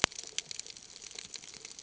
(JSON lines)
{"label": "ambient", "recorder": "HydroMoth"}